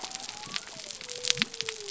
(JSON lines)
{"label": "biophony", "recorder": "SoundTrap 300"}